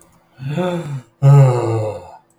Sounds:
Sigh